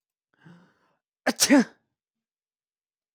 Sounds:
Sneeze